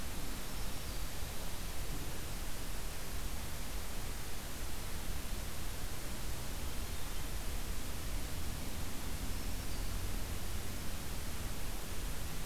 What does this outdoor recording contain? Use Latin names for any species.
Setophaga virens